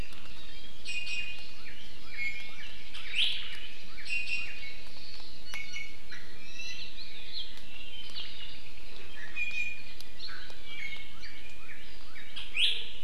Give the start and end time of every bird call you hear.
[0.87, 1.67] Iiwi (Drepanis coccinea)
[1.07, 4.57] Northern Cardinal (Cardinalis cardinalis)
[1.97, 2.67] Iiwi (Drepanis coccinea)
[3.07, 3.37] Iiwi (Drepanis coccinea)
[4.07, 4.57] Iiwi (Drepanis coccinea)
[5.47, 6.07] Iiwi (Drepanis coccinea)
[6.37, 6.97] Iiwi (Drepanis coccinea)
[9.07, 11.17] Iiwi (Drepanis coccinea)
[11.07, 12.77] Northern Cardinal (Cardinalis cardinalis)
[12.57, 12.97] Iiwi (Drepanis coccinea)

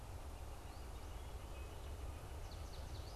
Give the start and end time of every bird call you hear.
[0.39, 3.15] Northern Flicker (Colaptes auratus)
[2.49, 3.15] American Goldfinch (Spinus tristis)

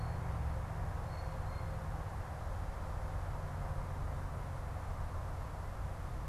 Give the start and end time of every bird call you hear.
[0.80, 1.80] Blue Jay (Cyanocitta cristata)

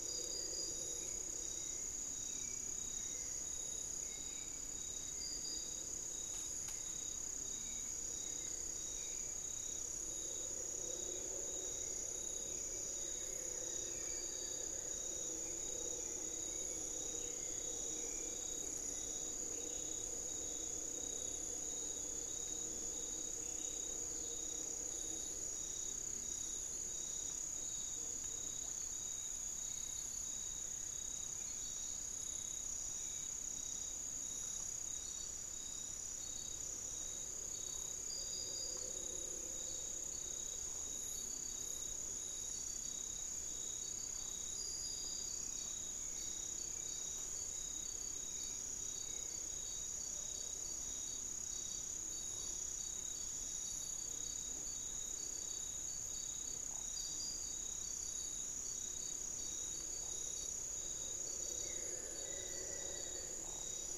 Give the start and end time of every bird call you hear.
[0.00, 19.60] Hauxwell's Thrush (Turdus hauxwelli)
[12.80, 15.30] Amazonian Barred-Woodcreeper (Dendrocolaptes certhia)
[29.00, 33.90] Hauxwell's Thrush (Turdus hauxwelli)
[42.50, 50.00] Hauxwell's Thrush (Turdus hauxwelli)
[61.30, 63.50] Buff-throated Woodcreeper (Xiphorhynchus guttatus)

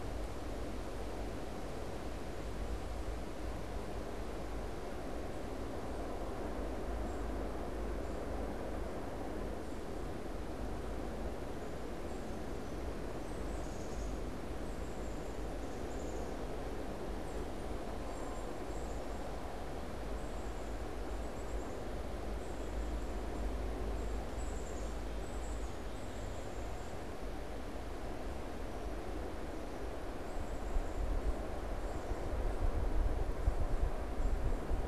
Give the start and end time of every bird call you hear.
[11.95, 34.85] Black-capped Chickadee (Poecile atricapillus)

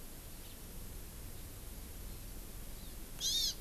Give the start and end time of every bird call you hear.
[3.16, 3.56] Hawaii Amakihi (Chlorodrepanis virens)

